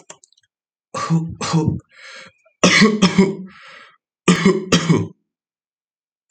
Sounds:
Cough